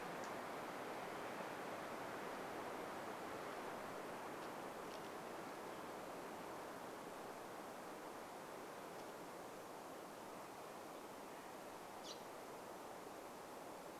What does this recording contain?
unidentified bird chip note